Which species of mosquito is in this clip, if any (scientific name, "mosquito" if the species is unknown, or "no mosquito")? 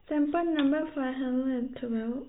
no mosquito